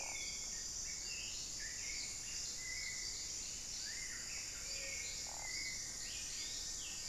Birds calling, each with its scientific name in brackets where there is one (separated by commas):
Black-billed Thrush (Turdus ignobilis), White-rumped Sirystes (Sirystes albocinereus), unidentified bird, Plumbeous Antbird (Myrmelastes hyperythrus)